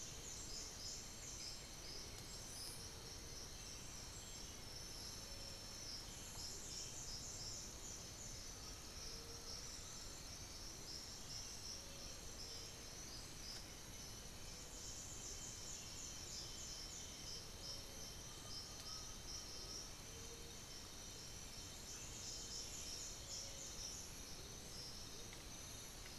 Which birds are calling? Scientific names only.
unidentified bird, Crypturellus undulatus